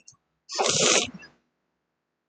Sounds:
Sniff